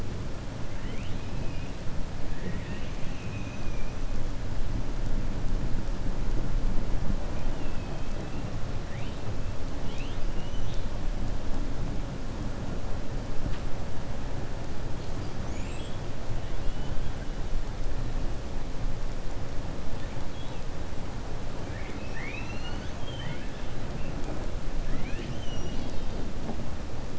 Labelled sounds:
1.3	1.7	killer whale, 2.4 to 3.6 kHz
7.4	8.4	killer whale, 1.9 to 3.6 kHz
15.1	16.0	killer whale, 2.2 to 7.9 kHz
16.4	17.0	killer whale, 2.8 to 3.6 kHz
21.6	23.6	killer whale, 0.95 to 6.2 kHz
24.8	26.1	killer whale, 1.4 to 6.3 kHz

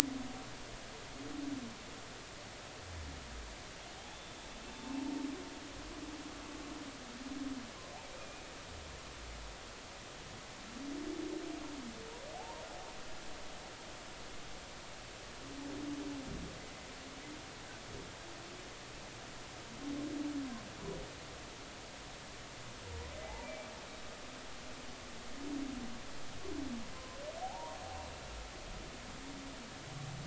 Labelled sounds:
4.1	5.0	humpback whale, 0.86 to 3.6 kHz
8.2	8.5	humpback whale, 2.4 to 2.5 kHz
12.3	12.6	humpback whale, 0.80 to 1.1 kHz
16.6	16.9	humpback whale, 2.0 to 2.1 kHz
23.2	23.7	humpback whale, 0.80 to 2.4 kHz
26.9	27.8	humpback whale, 0.80 to 1.1 kHz

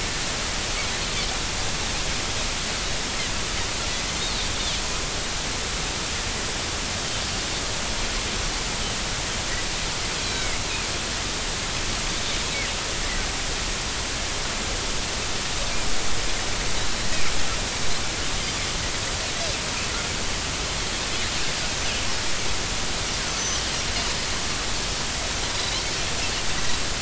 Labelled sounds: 10.2	10.6	Pacific white-sided dolphin, 2.0 to 4.2 kHz
25.5	25.8	Pacific white-sided dolphin, 3.8 to 4.2 kHz

